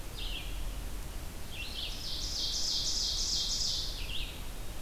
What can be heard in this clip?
Red-eyed Vireo, Ovenbird